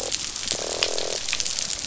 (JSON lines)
{"label": "biophony, croak", "recorder": "SoundTrap 500"}